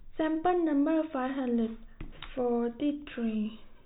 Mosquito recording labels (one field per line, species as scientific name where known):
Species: no mosquito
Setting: cup